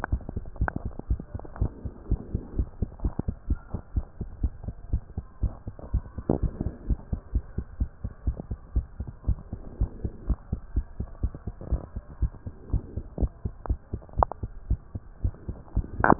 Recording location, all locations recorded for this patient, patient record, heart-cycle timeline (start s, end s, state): mitral valve (MV)
aortic valve (AV)+pulmonary valve (PV)+tricuspid valve (TV)+mitral valve (MV)
#Age: Child
#Sex: Female
#Height: 113.0 cm
#Weight: 17.3 kg
#Pregnancy status: False
#Murmur: Absent
#Murmur locations: nan
#Most audible location: nan
#Systolic murmur timing: nan
#Systolic murmur shape: nan
#Systolic murmur grading: nan
#Systolic murmur pitch: nan
#Systolic murmur quality: nan
#Diastolic murmur timing: nan
#Diastolic murmur shape: nan
#Diastolic murmur grading: nan
#Diastolic murmur pitch: nan
#Diastolic murmur quality: nan
#Outcome: Normal
#Campaign: 2015 screening campaign
0.10	0.24	S1
0.24	0.34	systole
0.34	0.44	S2
0.44	0.58	diastole
0.58	0.72	S1
0.72	0.84	systole
0.84	0.94	S2
0.94	1.10	diastole
1.10	1.24	S1
1.24	1.34	systole
1.34	1.42	S2
1.42	1.58	diastole
1.58	1.72	S1
1.72	1.83	systole
1.83	1.92	S2
1.92	2.08	diastole
2.08	2.20	S1
2.20	2.30	systole
2.30	2.42	S2
2.42	2.56	diastole
2.56	2.70	S1
2.70	2.78	systole
2.78	2.90	S2
2.90	3.02	diastole
3.02	3.14	S1
3.14	3.26	systole
3.26	3.36	S2
3.36	3.48	diastole
3.48	3.58	S1
3.58	3.70	systole
3.70	3.80	S2
3.80	3.94	diastole
3.94	4.06	S1
4.06	4.16	systole
4.16	4.27	S2
4.27	4.42	diastole
4.42	4.54	S1
4.54	4.64	systole
4.64	4.76	S2
4.76	4.90	diastole
4.90	5.02	S1
5.02	5.15	systole
5.15	5.26	S2
5.26	5.42	diastole
5.42	5.53	S1
5.53	5.66	systole
5.66	5.74	S2
5.74	5.92	diastole
5.92	6.06	S1
6.06	6.16	systole
6.16	6.24	S2
6.24	6.40	diastole
6.40	6.52	S1
6.52	6.62	systole
6.62	6.74	S2
6.74	6.88	diastole
6.88	7.00	S1
7.00	7.08	systole
7.08	7.20	S2
7.20	7.34	diastole
7.34	7.44	S1
7.44	7.54	systole
7.54	7.66	S2
7.66	7.78	diastole
7.78	7.90	S1
7.90	8.04	systole
8.04	8.12	S2
8.12	8.25	diastole
8.25	8.35	S1
8.35	8.47	systole
8.47	8.57	S2
8.57	8.74	diastole
8.74	8.88	S1
8.88	8.98	systole
8.98	9.08	S2
9.08	9.26	diastole
9.26	9.40	S1
9.40	9.50	systole
9.50	9.60	S2
9.60	9.78	diastole
9.78	9.90	S1
9.90	10.02	systole
10.02	10.12	S2
10.12	10.28	diastole
10.28	10.38	S1
10.38	10.48	systole
10.48	10.60	S2
10.60	10.74	diastole
10.74	10.86	S1
10.86	10.98	systole
10.98	11.08	S2
11.08	11.22	diastole
11.22	11.32	S1
11.32	11.46	systole
11.46	11.54	S2
11.54	11.70	diastole
11.70	11.82	S1
11.82	11.96	systole
11.96	12.04	S2
12.04	12.20	diastole
12.20	12.32	S1
12.32	12.46	systole
12.46	12.54	S2
12.54	12.72	diastole
12.72	12.86	S1
12.86	12.96	systole
12.96	13.04	S2
13.04	13.18	diastole
13.18	13.32	S1
13.32	13.44	systole
13.44	13.54	S2
13.54	13.68	diastole
13.68	13.80	S1
13.80	13.92	systole
13.92	14.02	S2
14.02	14.16	diastole
14.16	14.30	S1
14.30	14.42	systole
14.42	14.52	S2
14.52	14.68	diastole
14.68	14.80	S1
14.80	14.94	systole
14.94	15.02	S2
15.02	15.20	diastole
15.20	15.34	S1
15.34	15.48	systole
15.48	15.58	S2
15.58	15.74	diastole
15.74	15.86	S1
15.86	15.99	systole